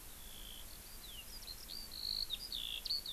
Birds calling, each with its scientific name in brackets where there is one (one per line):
Eurasian Skylark (Alauda arvensis)